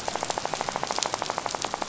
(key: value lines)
label: biophony, rattle
recorder: SoundTrap 500